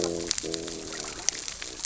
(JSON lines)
{"label": "biophony, growl", "recorder": "SoundTrap 600 or HydroMoth"}